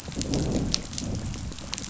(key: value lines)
label: biophony, growl
recorder: SoundTrap 500